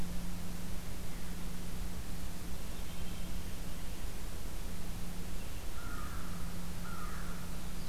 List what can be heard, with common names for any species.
American Crow